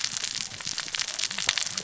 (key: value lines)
label: biophony, cascading saw
recorder: SoundTrap 600 or HydroMoth